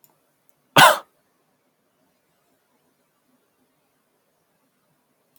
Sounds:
Cough